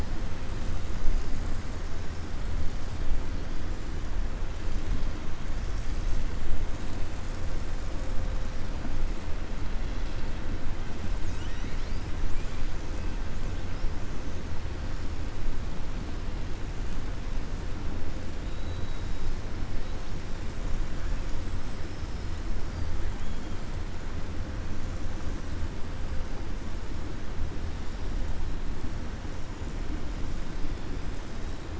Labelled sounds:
12.3	12.6	killer whale, 1.5 to 4.5 kHz
18.4	19.4	killer whale, 3.5 to 5.3 kHz

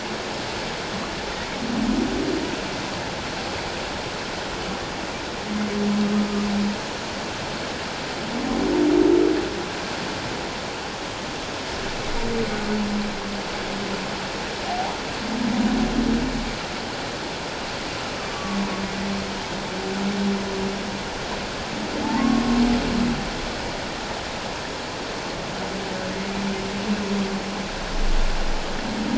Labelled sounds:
14.7	15.0	humpback whale, 0.78 to 1.1 kHz
18.3	18.6	humpback whale, 1.1 to 1.2 kHz
22.2	22.4	humpback whale, 1.0 to 1.2 kHz

